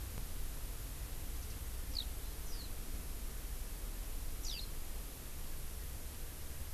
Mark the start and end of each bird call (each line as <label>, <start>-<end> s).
Eurasian Skylark (Alauda arvensis), 1.9-2.0 s
Eurasian Skylark (Alauda arvensis), 2.4-2.7 s
Eurasian Skylark (Alauda arvensis), 4.4-4.7 s